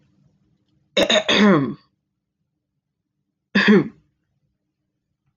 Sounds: Throat clearing